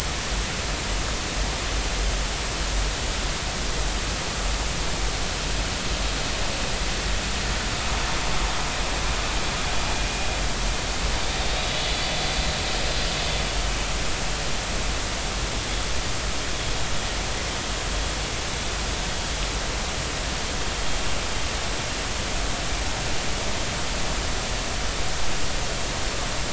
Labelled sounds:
11.5	11.8	vessel noise, 3.7 to 4.0 kHz

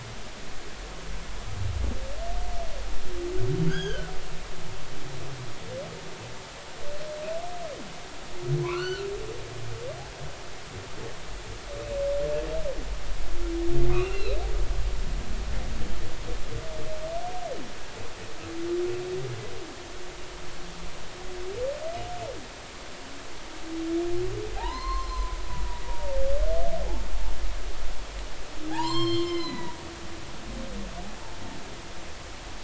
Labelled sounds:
3.7	4.1	humpback whale, 1.3 to 6.6 kHz
8.6	9.1	humpback whale, 0.93 to 4.6 kHz
13.9	14.4	humpback whale, 2.4 to 4.2 kHz
24.5	26.2	humpback whale, 0.80 to 4.4 kHz
28.7	29.8	humpback whale, 0.80 to 7.6 kHz

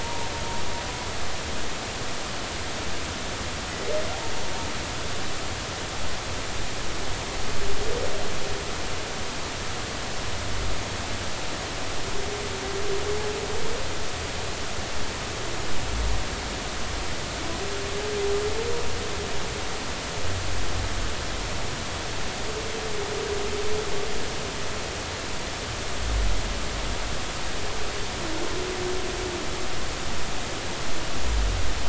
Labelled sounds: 0.0	0.3	humpback whale, 0.86 to 1.0 kHz

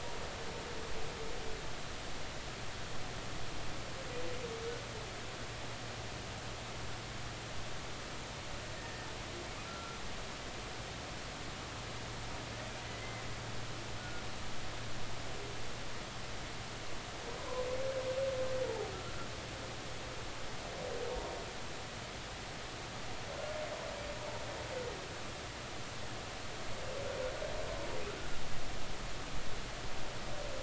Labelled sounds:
8.8	9.1	humpback whale, 1.8 to 1.9 kHz
9.7	10.0	humpback whale, 1.3 to 1.5 kHz
14.0	14.2	humpback whale, 1.4 to 1.5 kHz
18.9	19.3	humpback whale, 1.3 to 1.4 kHz
19.6	19.9	humpback whale, 0.80 to 0.96 kHz
21.1	21.4	humpback whale, 0.90 to 0.99 kHz

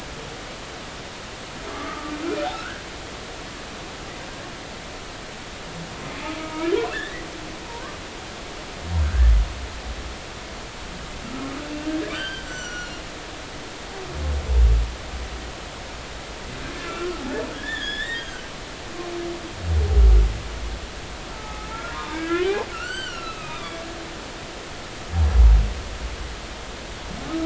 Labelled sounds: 1.7	2.8	humpback whale, 1.1 to 1.7 kHz
6.4	7.2	humpback whale, 1.2 to 2.2 kHz
7.7	8.0	humpback whale, 0.90 to 1.2 kHz
9.0	9.3	humpback whale, 1.3 to 1.8 kHz
12.1	13.0	humpback whale, 1.3 to 7.6 kHz
16.8	18.4	humpback whale, 1.3 to 5.3 kHz
21.3	23.8	humpback whale, 0.80 to 7.8 kHz

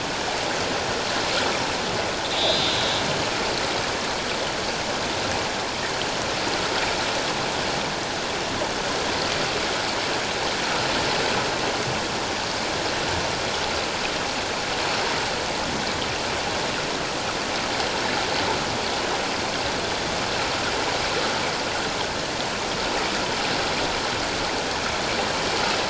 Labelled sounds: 2.3	3.0	killer whale, northern resident, A clan, call N03, 3.2 to 4.1 kHz

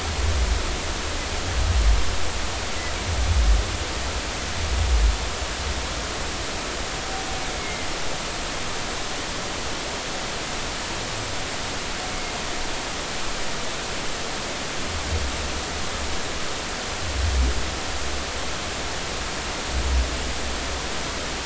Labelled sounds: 7.6	7.9	humpback whale, 2.0 to 2.2 kHz
12.1	12.3	humpback whale, 2.1 to 2.3 kHz

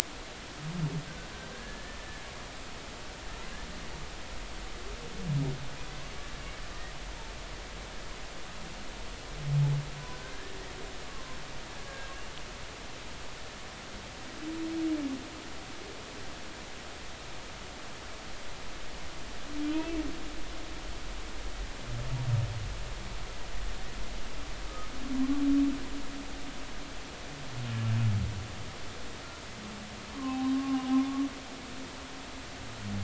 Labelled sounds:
1.5	2.2	humpback whale, 1.6 to 1.9 kHz
11.0	11.4	humpback whale, 0.99 to 1.2 kHz
11.9	12.1	humpback whale, 1.6 to 1.7 kHz
19.7	20.0	humpback whale, 2.5 to 2.7 kHz
30.1	30.9	humpback whale, 0.80 to 1.2 kHz

